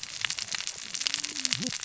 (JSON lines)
{"label": "biophony, cascading saw", "recorder": "SoundTrap 600 or HydroMoth"}